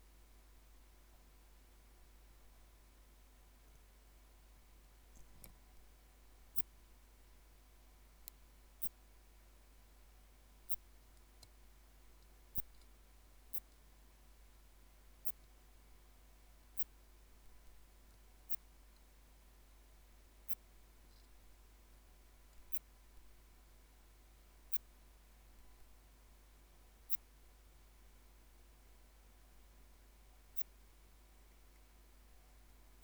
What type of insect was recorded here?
orthopteran